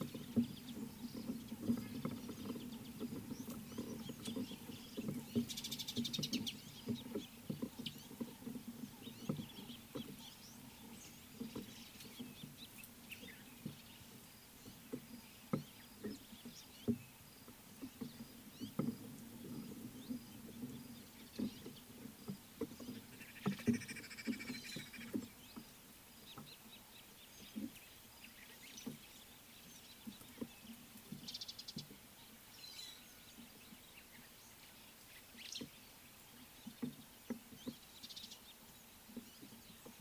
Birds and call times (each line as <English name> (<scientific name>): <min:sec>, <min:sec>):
Mariqua Sunbird (Cinnyris mariquensis): 0:06.0, 0:31.6, 0:38.2
Green Woodhoopoe (Phoeniculus purpureus): 0:24.1
Scarlet-chested Sunbird (Chalcomitra senegalensis): 0:26.6
White-headed Buffalo-Weaver (Dinemellia dinemelli): 0:32.8
White-browed Sparrow-Weaver (Plocepasser mahali): 0:35.6